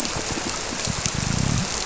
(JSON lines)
{"label": "biophony", "recorder": "SoundTrap 300"}